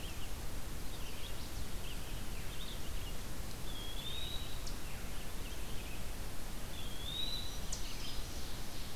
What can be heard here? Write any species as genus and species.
Vireo olivaceus, Setophaga pensylvanica, Contopus virens, Tamias striatus, Setophaga virens, Seiurus aurocapilla